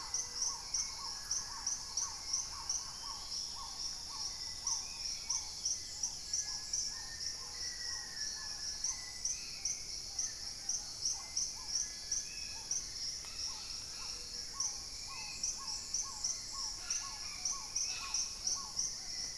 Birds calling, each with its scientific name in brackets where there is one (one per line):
Black-tailed Trogon (Trogon melanurus)
Dusky-throated Antshrike (Thamnomanes ardesiacus)
Red-bellied Macaw (Orthopsittaca manilatus)
Thrush-like Wren (Campylorhynchus turdinus)
Black-faced Antthrush (Formicarius analis)
Gray-fronted Dove (Leptotila rufaxilla)
Little Tinamou (Crypturellus soui)
unidentified bird
Hauxwell's Thrush (Turdus hauxwelli)
Spot-winged Antshrike (Pygiptila stellaris)